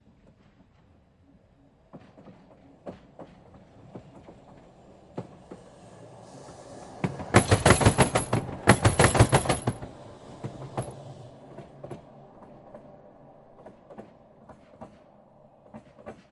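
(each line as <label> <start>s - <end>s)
A train is approaching. 1.7s - 6.8s
A train is passing by. 6.9s - 9.9s
A train is moving into the distance. 10.1s - 16.3s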